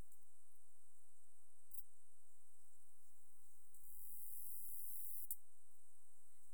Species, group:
Pholidoptera femorata
Orthoptera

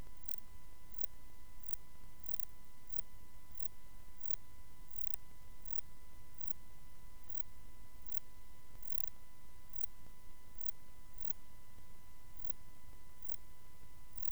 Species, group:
Metrioptera saussuriana
Orthoptera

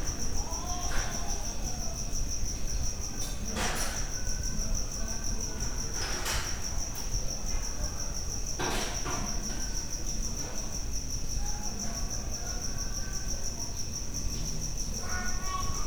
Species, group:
Gryllodes sigillatus
Orthoptera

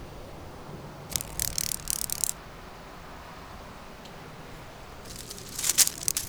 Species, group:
Psophus stridulus
Orthoptera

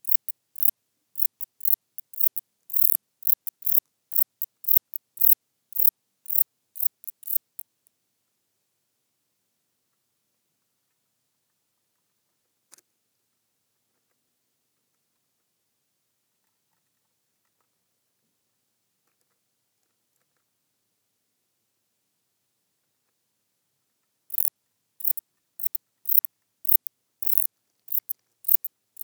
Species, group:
Metrioptera buyssoni
Orthoptera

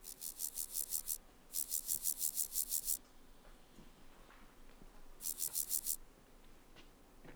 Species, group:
Chorthippus vagans
Orthoptera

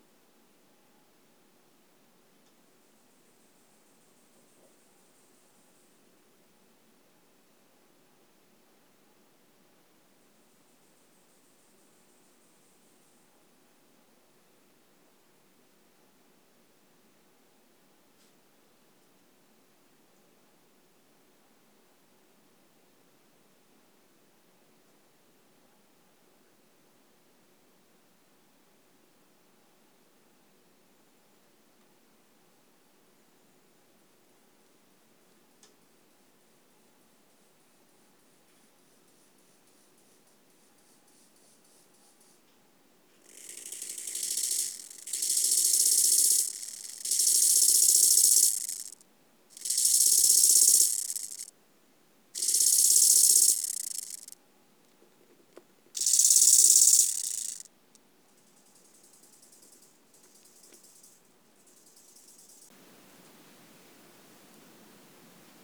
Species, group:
Chorthippus eisentrauti
Orthoptera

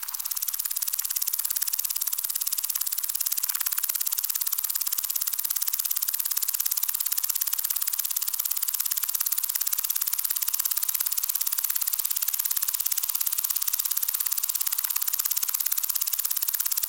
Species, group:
Omocestus viridulus
Orthoptera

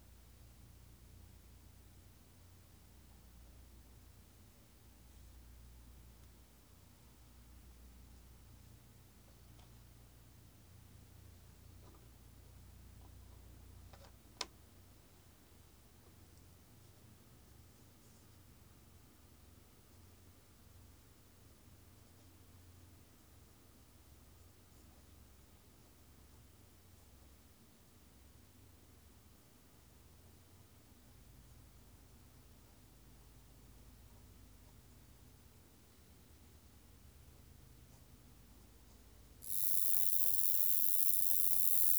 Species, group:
Roeseliana roeselii
Orthoptera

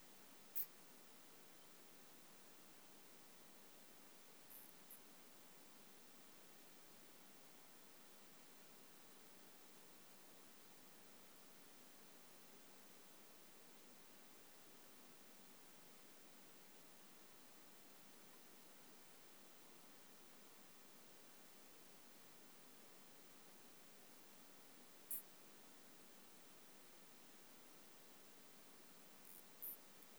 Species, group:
Isophya speciosa
Orthoptera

